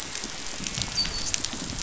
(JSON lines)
{"label": "biophony, dolphin", "recorder": "SoundTrap 500"}